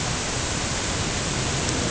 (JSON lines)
{"label": "ambient", "recorder": "HydroMoth"}